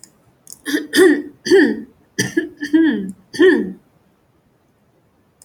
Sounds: Throat clearing